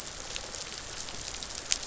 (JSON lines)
{"label": "biophony, rattle response", "recorder": "SoundTrap 500"}